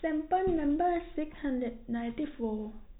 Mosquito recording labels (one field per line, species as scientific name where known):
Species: no mosquito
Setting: cup